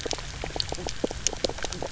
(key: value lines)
label: biophony, knock croak
recorder: SoundTrap 300